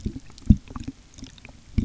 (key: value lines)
label: geophony, waves
recorder: SoundTrap 300